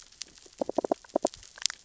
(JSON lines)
{"label": "biophony, knock", "recorder": "SoundTrap 600 or HydroMoth"}